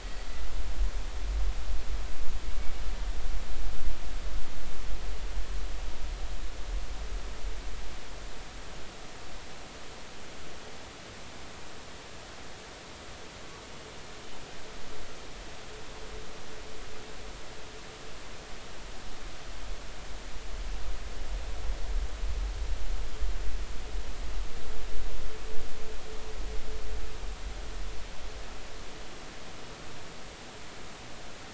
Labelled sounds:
0.0	0.4	killer whale, Bigg's (transient), 4.4 to 4.6 kHz

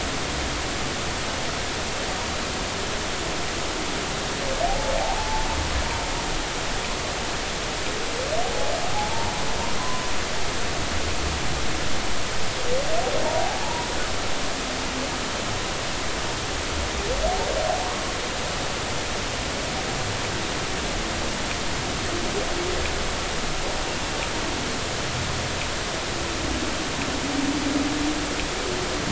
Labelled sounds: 4.7	5.5	humpback whale, 0.80 to 0.93 kHz
8.9	9.3	humpback whale, 0.80 to 0.99 kHz
13.4	13.9	humpback whale, 0.80 to 1.0 kHz

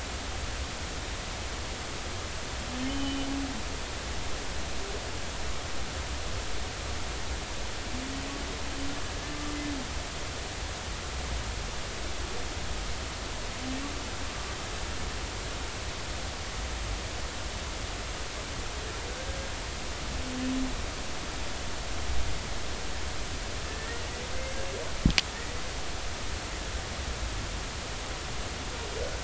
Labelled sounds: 2.8	3.3	humpback whale, 2.9 to 3.1 kHz
23.7	24.0	humpback whale, 1.7 to 2.0 kHz

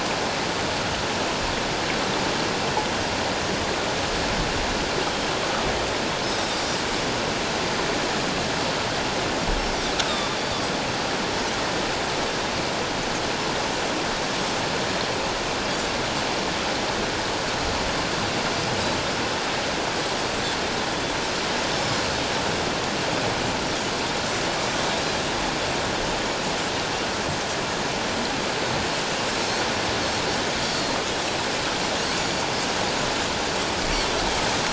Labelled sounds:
10.0	10.3	Pacific white-sided dolphin, 1.1 to 1.3 kHz
21.7	22.0	Pacific white-sided dolphin, 5.2 to 5.5 kHz
30.6	31.0	Pacific white-sided dolphin, 4.1 to 4.8 kHz
32.2	32.4	Pacific white-sided dolphin, 6.8 to 7.0 kHz

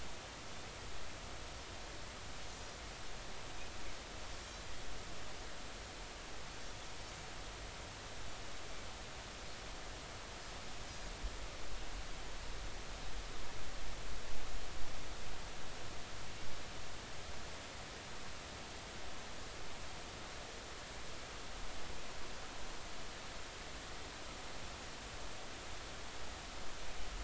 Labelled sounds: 4.4	4.7	Pacific white-sided dolphin, 5.5 to 5.7 kHz

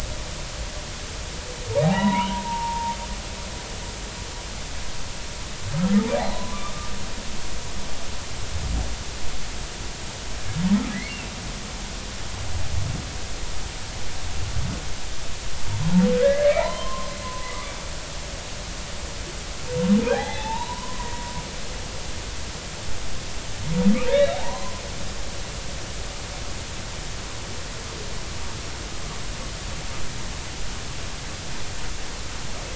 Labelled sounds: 1.8	3.0	humpback whale, 0.80 to 2.0 kHz
5.7	6.6	humpback whale, 0.80 to 1.4 kHz
16.2	17.7	humpback whale, 0.83 to 3.2 kHz
20.1	21.1	humpback whale, 0.80 to 4.0 kHz
24.1	24.8	humpback whale, 0.80 to 4.0 kHz

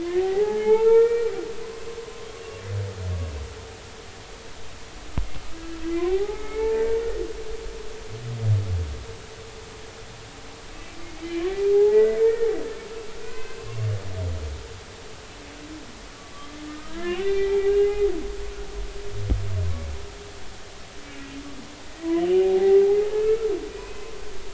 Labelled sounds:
0.0	1.3	humpback whale, 0.80 to 3.1 kHz
1.6	2.3	humpback whale, 0.96 to 1.2 kHz
6.0	6.9	humpback whale, 0.80 to 2.3 kHz
11.2	12.5	humpback whale, 0.80 to 3.1 kHz
13.2	13.7	humpback whale, 1.4 to 2.7 kHz
16.7	18.0	humpback whale, 0.80 to 3.3 kHz
21.9	22.8	humpback whale, 0.80 to 2.1 kHz
23.7	24.5	humpback whale, 1.2 to 2.6 kHz

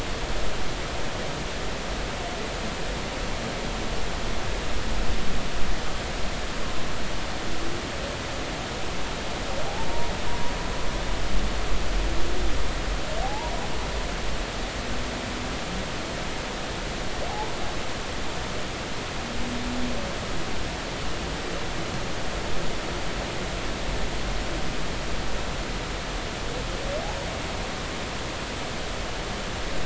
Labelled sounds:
13.2	13.5	humpback whale, 0.80 to 1.0 kHz

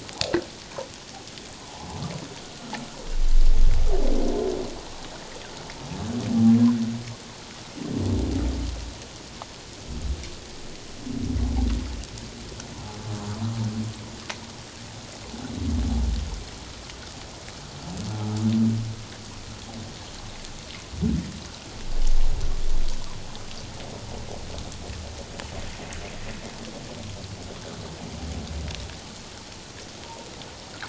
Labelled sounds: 1.5	1.9	humpback whale, 0.78 to 1.1 kHz

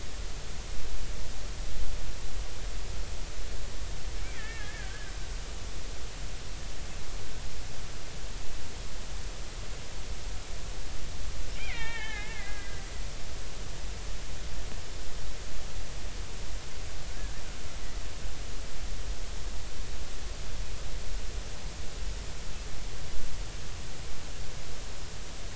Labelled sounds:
4.3	5.1	killer whale, Bigg's (transient), 1.5 to 2.3 kHz
11.6	12.8	killer whale, Bigg's (transient), 0.80 to 3.8 kHz
17.1	17.4	killer whale, Bigg's (transient), 1.4 to 1.8 kHz

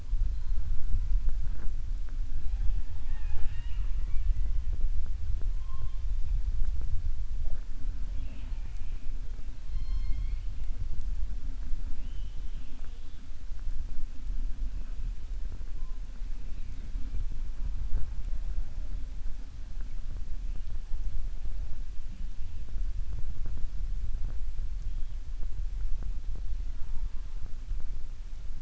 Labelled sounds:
2.9	4.3	killer whale, southern resident, 0.44 to 4.4 kHz

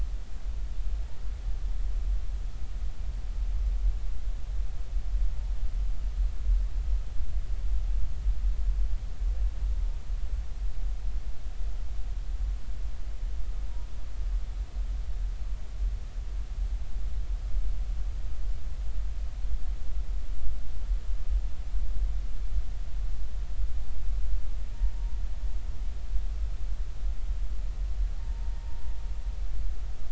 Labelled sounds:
28.2	28.9	humpback whale, 0.86 to 0.99 kHz

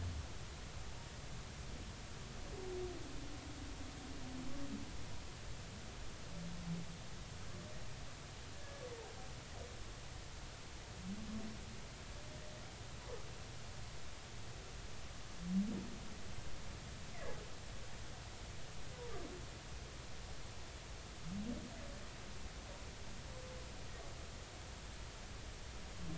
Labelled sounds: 8.5	8.8	humpback whale, 1.6 to 1.8 kHz

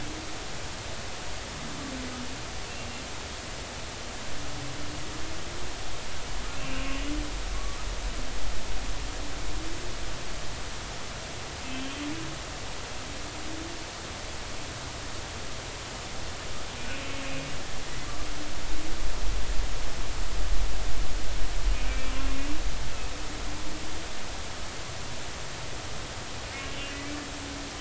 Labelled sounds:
6.6	7.8	humpback whale, 1.1 to 2.9 kHz
11.6	11.9	humpback whale, 2.6 to 2.8 kHz
21.9	22.1	humpback whale, 2.3 to 2.5 kHz
26.8	27.1	humpback whale, 2.5 to 2.6 kHz

